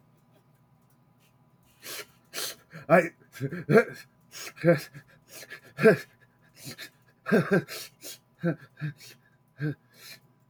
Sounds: Sniff